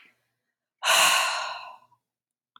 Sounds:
Sigh